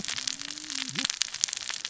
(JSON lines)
{"label": "biophony, cascading saw", "recorder": "SoundTrap 600 or HydroMoth"}